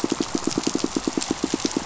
{"label": "biophony, pulse", "recorder": "SoundTrap 500"}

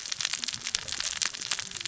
{"label": "biophony, cascading saw", "recorder": "SoundTrap 600 or HydroMoth"}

